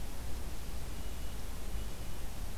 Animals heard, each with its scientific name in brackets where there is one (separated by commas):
Red-breasted Nuthatch (Sitta canadensis)